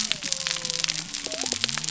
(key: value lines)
label: biophony
recorder: SoundTrap 300